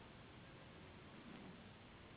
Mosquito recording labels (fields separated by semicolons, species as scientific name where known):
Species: Anopheles gambiae s.s.; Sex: female; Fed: unfed; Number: one; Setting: insect culture